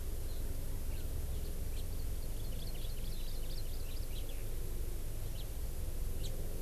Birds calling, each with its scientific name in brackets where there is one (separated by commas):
Eurasian Skylark (Alauda arvensis), House Finch (Haemorhous mexicanus), Hawaii Amakihi (Chlorodrepanis virens)